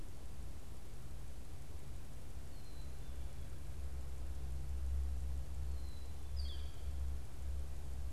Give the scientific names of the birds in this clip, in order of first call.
Poecile atricapillus, Colaptes auratus